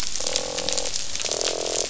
{"label": "biophony, croak", "recorder": "SoundTrap 500"}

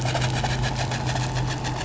{"label": "anthrophony, boat engine", "recorder": "SoundTrap 500"}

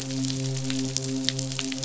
{"label": "biophony, midshipman", "recorder": "SoundTrap 500"}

